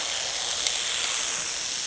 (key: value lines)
label: anthrophony, boat engine
recorder: HydroMoth